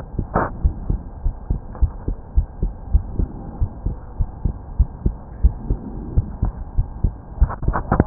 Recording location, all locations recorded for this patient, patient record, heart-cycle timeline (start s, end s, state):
pulmonary valve (PV)
aortic valve (AV)+pulmonary valve (PV)+tricuspid valve (TV)+mitral valve (MV)
#Age: Adolescent
#Sex: Male
#Height: nan
#Weight: nan
#Pregnancy status: False
#Murmur: Absent
#Murmur locations: nan
#Most audible location: nan
#Systolic murmur timing: nan
#Systolic murmur shape: nan
#Systolic murmur grading: nan
#Systolic murmur pitch: nan
#Systolic murmur quality: nan
#Diastolic murmur timing: nan
#Diastolic murmur shape: nan
#Diastolic murmur grading: nan
#Diastolic murmur pitch: nan
#Diastolic murmur quality: nan
#Outcome: Abnormal
#Campaign: 2015 screening campaign
0.00	0.56	unannotated
0.56	0.73	S1
0.73	0.87	systole
0.87	1.02	S2
1.02	1.21	diastole
1.21	1.34	S1
1.34	1.47	systole
1.47	1.60	S2
1.60	1.78	diastole
1.78	1.92	S1
1.92	2.04	systole
2.04	2.16	S2
2.16	2.32	diastole
2.32	2.48	S1
2.48	2.59	systole
2.59	2.74	S2
2.74	2.90	diastole
2.90	3.04	S1
3.04	3.16	systole
3.16	3.33	S2
3.33	3.58	diastole
3.58	3.70	S1
3.70	3.82	systole
3.82	3.98	S2
3.98	4.17	diastole
4.17	4.30	S1
4.30	4.41	systole
4.41	4.56	S2
4.56	4.74	diastole
4.74	4.90	S1
4.90	5.01	systole
5.01	5.16	S2
5.16	5.38	diastole
5.38	5.55	S1
5.55	5.66	systole
5.66	5.80	S2
5.80	6.08	diastole
6.08	6.26	S1
6.26	6.40	systole
6.40	6.54	S2
6.54	6.74	diastole
6.74	6.88	S1
6.88	7.01	systole
7.01	7.16	S2
7.16	7.24	diastole
7.24	8.06	unannotated